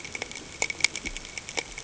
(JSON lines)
{"label": "ambient", "recorder": "HydroMoth"}